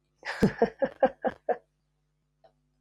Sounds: Laughter